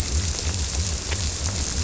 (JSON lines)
{"label": "biophony", "recorder": "SoundTrap 300"}